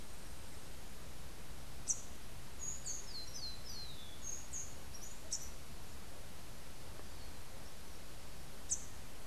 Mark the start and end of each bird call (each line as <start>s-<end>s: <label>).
1.7s-2.0s: Rufous-capped Warbler (Basileuterus rufifrons)
2.6s-4.2s: Rufous-collared Sparrow (Zonotrichia capensis)
5.2s-5.5s: Rufous-capped Warbler (Basileuterus rufifrons)
8.5s-8.9s: Rufous-capped Warbler (Basileuterus rufifrons)